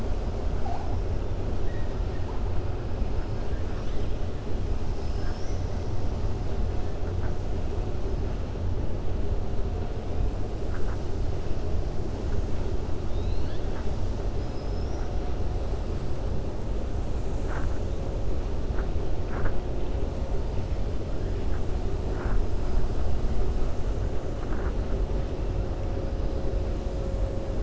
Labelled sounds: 4.9	5.9	killer whale, 4.4 to 7.9 kHz
13.0	13.9	killer whale, 0.90 to 4.7 kHz
14.3	15.1	killer whale, 5.0 to 5.9 kHz

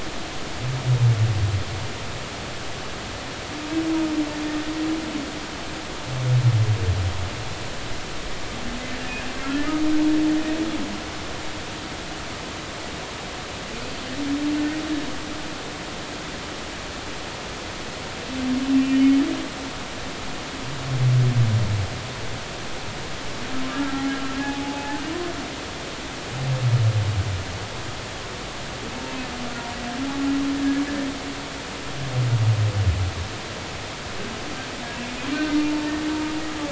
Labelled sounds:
18.7	19.1	humpback whale, 2.6 to 3.0 kHz
23.7	25.0	humpback whale, 0.80 to 1.5 kHz
35.5	35.9	humpback whale, 0.86 to 0.96 kHz

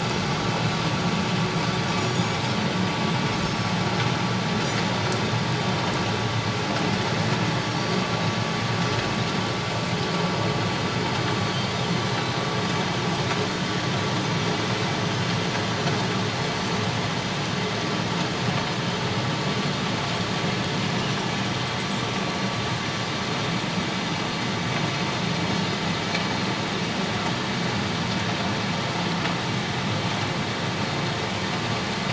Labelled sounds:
2.0	2.4	Pacific white-sided dolphin, 6.6 to 6.8 kHz
3.4	3.7	Pacific white-sided dolphin, 5.2 to 5.5 kHz
7.8	8.1	Pacific white-sided dolphin, 4.4 to 4.7 kHz
11.4	12.4	Pacific white-sided dolphin, 3.9 to 4.8 kHz
16.5	16.8	Pacific white-sided dolphin, 4.4 to 4.6 kHz

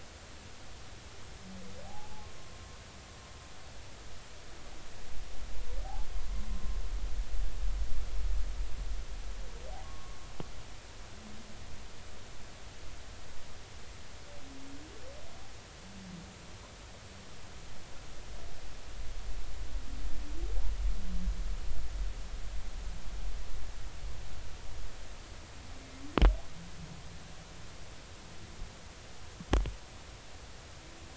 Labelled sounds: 1.8	2.3	humpback whale, 0.80 to 0.93 kHz
9.8	10.2	humpback whale, 1.0 to 1.2 kHz

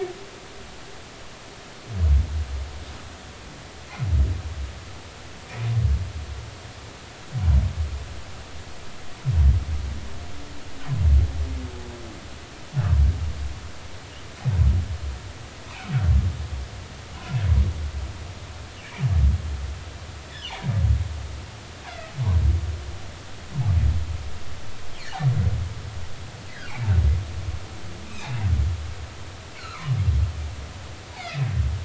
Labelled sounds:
21.9	22.1	humpback whale, 1.9 to 2.1 kHz
28.0	28.4	humpback whale, 2.3 to 2.7 kHz
30.6	31.4	humpback whale, 1.2 to 2.3 kHz

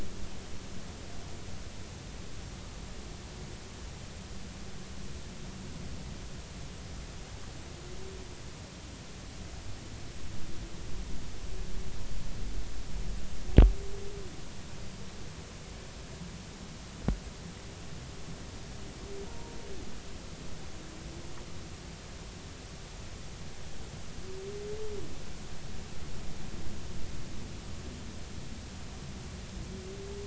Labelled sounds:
19.3	19.5	humpback whale, 0.90 to 0.99 kHz

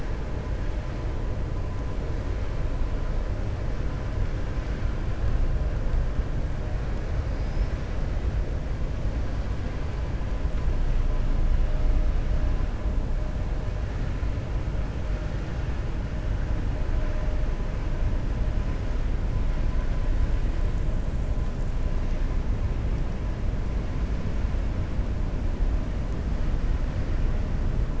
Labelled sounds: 7.3	7.8	killer whale, 4.4 to 6.1 kHz

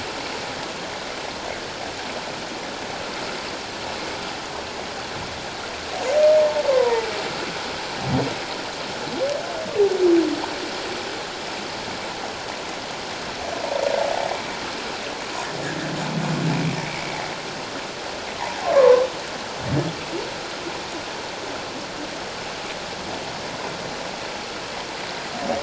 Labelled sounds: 6.4	7.1	humpback whale, 0.81 to 1.1 kHz
16.8	17.2	humpback whale, 2.1 to 2.4 kHz
18.7	19.0	humpback whale, 0.81 to 1.2 kHz

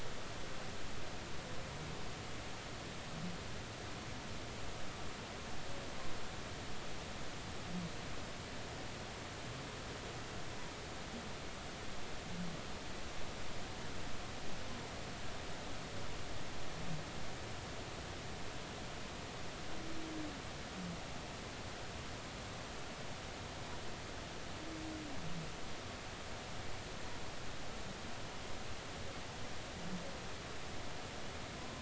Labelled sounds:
31.5	31.8	humpback whale, 0.96 to 1.1 kHz

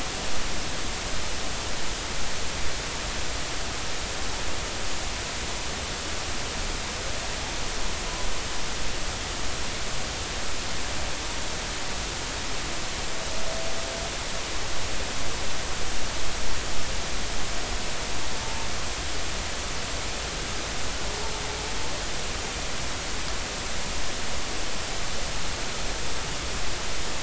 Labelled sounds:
18.4	18.7	humpback whale, 0.86 to 0.93 kHz

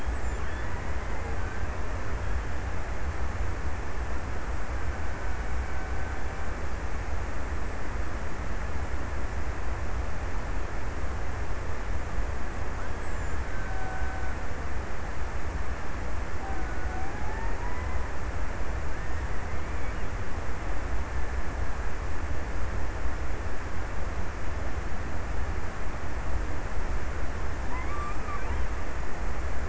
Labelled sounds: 4.4	7.0	killer whale, Bigg's (transient), 0.66 to 2.5 kHz
13.1	15.0	killer whale, Bigg's (transient), 0.60 to 1.8 kHz
15.8	18.5	killer whale, Bigg's (transient), 0.54 to 1.8 kHz
27.0	29.2	killer whale, Bigg's (transient), 0.66 to 2.6 kHz

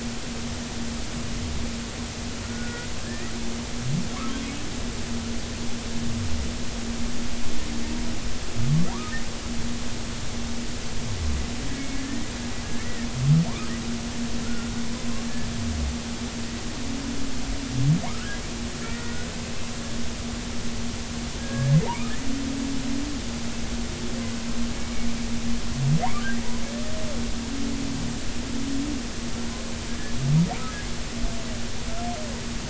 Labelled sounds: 2.4	3.3	humpback whale, 1.3 to 2.0 kHz
4.2	4.4	humpback whale, 0.99 to 1.4 kHz
11.9	12.2	humpback whale, 1.7 to 1.9 kHz
12.8	13.1	humpback whale, 1.7 to 2.0 kHz
14.4	14.7	humpback whale, 1.3 to 1.5 kHz
18.0	18.4	humpback whale, 0.90 to 1.7 kHz
18.8	19.3	humpback whale, 1.3 to 2.0 kHz
21.4	21.8	humpback whale, 1.6 to 1.8 kHz
26.0	26.3	humpback whale, 0.80 to 1.2 kHz

